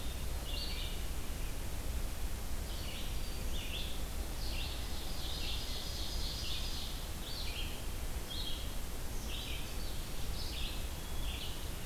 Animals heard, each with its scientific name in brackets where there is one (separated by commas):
Black-throated Green Warbler (Setophaga virens), Ovenbird (Seiurus aurocapilla), Red-eyed Vireo (Vireo olivaceus)